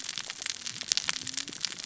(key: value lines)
label: biophony, cascading saw
recorder: SoundTrap 600 or HydroMoth